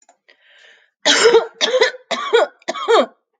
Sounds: Cough